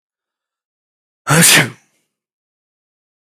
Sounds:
Sneeze